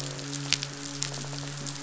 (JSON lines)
{"label": "biophony", "recorder": "SoundTrap 500"}
{"label": "biophony, midshipman", "recorder": "SoundTrap 500"}